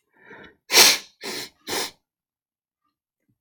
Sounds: Sneeze